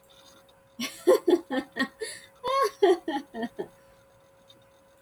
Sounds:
Laughter